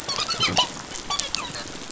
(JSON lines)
{"label": "biophony, dolphin", "recorder": "SoundTrap 500"}